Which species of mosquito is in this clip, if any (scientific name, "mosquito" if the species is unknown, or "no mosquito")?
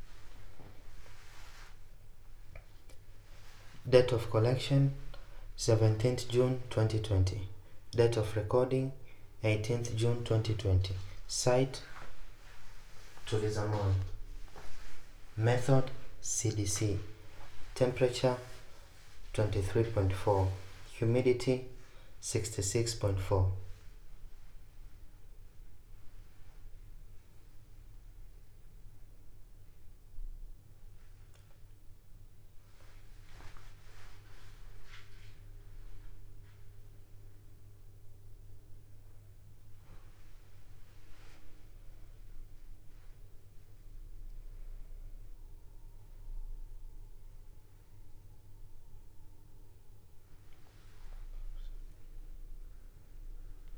no mosquito